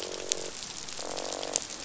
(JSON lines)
{"label": "biophony, croak", "recorder": "SoundTrap 500"}